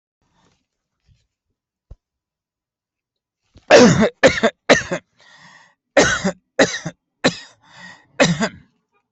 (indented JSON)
{
  "expert_labels": [
    {
      "quality": "good",
      "cough_type": "dry",
      "dyspnea": false,
      "wheezing": false,
      "stridor": false,
      "choking": false,
      "congestion": false,
      "nothing": true,
      "diagnosis": "upper respiratory tract infection",
      "severity": "mild"
    }
  ],
  "age": 48,
  "gender": "male",
  "respiratory_condition": false,
  "fever_muscle_pain": false,
  "status": "healthy"
}